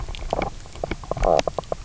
{"label": "biophony, knock croak", "recorder": "SoundTrap 300"}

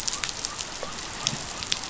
{"label": "biophony", "recorder": "SoundTrap 500"}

